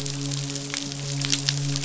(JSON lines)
{"label": "biophony, midshipman", "recorder": "SoundTrap 500"}